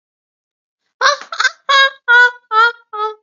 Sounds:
Laughter